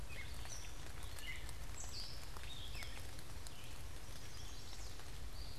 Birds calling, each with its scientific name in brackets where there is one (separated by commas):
Chestnut-sided Warbler (Setophaga pensylvanica), Gray Catbird (Dumetella carolinensis), Red-eyed Vireo (Vireo olivaceus)